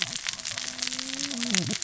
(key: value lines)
label: biophony, cascading saw
recorder: SoundTrap 600 or HydroMoth